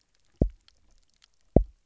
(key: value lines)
label: biophony, double pulse
recorder: SoundTrap 300